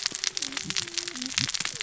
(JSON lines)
{"label": "biophony, cascading saw", "recorder": "SoundTrap 600 or HydroMoth"}